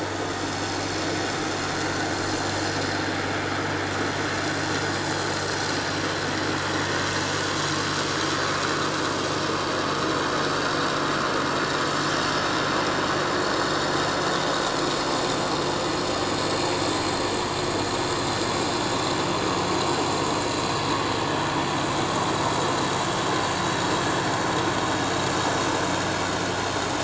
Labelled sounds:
23.9	24.2	vessel noise, 7.3 to 7.6 kHz

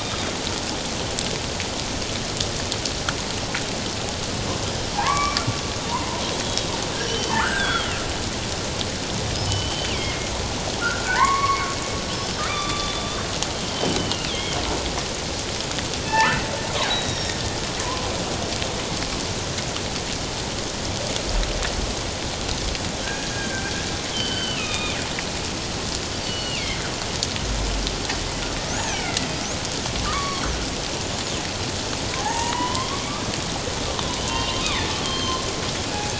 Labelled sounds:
4.9	6.2	killer whale, northern resident, G clan, 0.78 to 2.4 kHz
6.5	7.9	killer whale, northern resident, G clan, 1.1 to 5.8 kHz
9.5	10.3	killer whale, northern resident, G clan, 2.0 to 4.7 kHz
10.8	11.8	killer whale, northern resident, G clan, 0.84 to 2.4 kHz
12.4	13.2	killer whale, northern resident, G clan, 1.1 to 3.7 kHz
13.6	14.6	killer whale, northern resident, G clan, 2.1 to 3.8 kHz
16.0	17.4	killer whale, northern resident, G clan, 1.7 to 5.8 kHz
17.8	18.1	killer whale, northern resident, G clan, 0.94 to 1.2 kHz
23.0	25.0	killer whale, northern resident, G clan, 1.2 to 6.7 kHz
26.2	26.8	killer whale, northern resident, G clan, 2.0 to 4.7 kHz
28.7	29.3	killer whale, northern resident, G clan, 1.9 to 6.9 kHz
30.0	30.5	killer whale, northern resident, G clan, 1.0 to 4.5 kHz
32.2	33.1	killer whale, northern resident, G clan, 0.78 to 3.3 kHz
34.2	35.4	killer whale, northern resident, G clan, 1.7 to 4.3 kHz

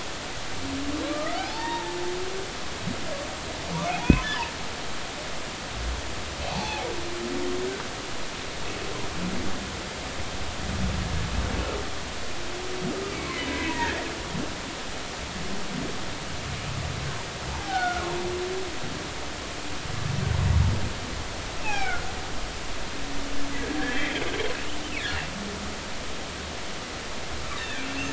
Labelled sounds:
1.0	2.0	humpback whale, 0.80 to 3.8 kHz
3.9	4.3	humpback whale, 0.80 to 1.2 kHz
6.4	6.9	humpback whale, 0.80 to 4.5 kHz
13.4	14.0	humpback whale, 0.86 to 2.1 kHz
17.5	18.0	humpback whale, 0.80 to 1.6 kHz
21.6	23.1	humpback whale, 0.80 to 2.7 kHz
23.8	24.2	humpback whale, 1.5 to 3.2 kHz
27.6	27.8	humpback whale, 3.4 to 3.9 kHz

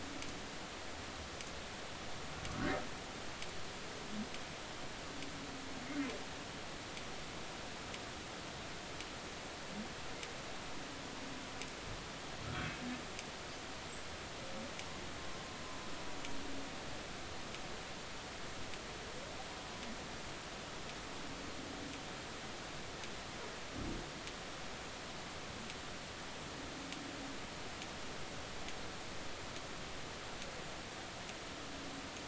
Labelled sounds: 12.4	12.7	humpback whale, 1.2 to 1.6 kHz

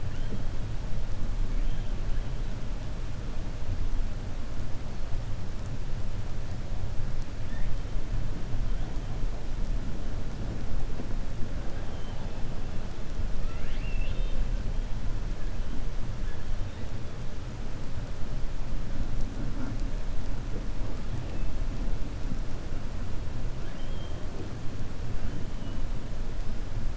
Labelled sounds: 13.4	14.4	killer whale, 1.3 to 4.6 kHz
23.6	24.2	killer whale, 1.5 to 3.7 kHz

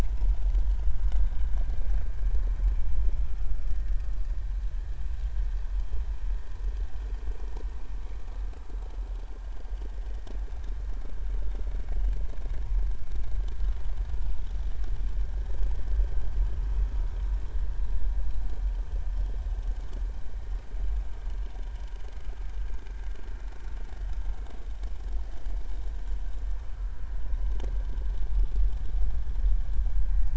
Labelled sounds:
3.2	3.5	vessel noise, 1.2 to 1.5 kHz

